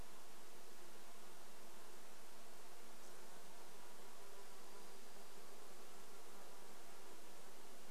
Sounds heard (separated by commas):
insect buzz, Dark-eyed Junco song